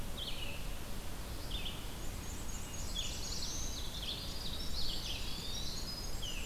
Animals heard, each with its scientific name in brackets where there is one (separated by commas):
Black-throated Blue Warbler (Setophaga caerulescens), Red-eyed Vireo (Vireo olivaceus), Eastern Wood-Pewee (Contopus virens), Winter Wren (Troglodytes hiemalis), Black-and-white Warbler (Mniotilta varia)